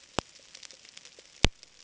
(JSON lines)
{"label": "ambient", "recorder": "HydroMoth"}